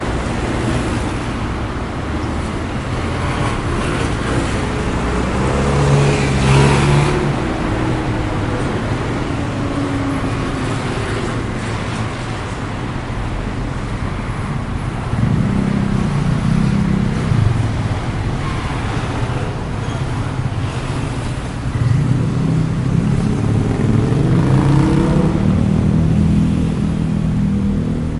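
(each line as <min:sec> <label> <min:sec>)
0:00.0 A deep rumbling sound of motorcycles passing by. 0:28.2
0:00.0 The dull, deep sound of car engines passing by. 0:28.2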